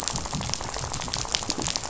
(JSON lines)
{"label": "biophony, rattle", "recorder": "SoundTrap 500"}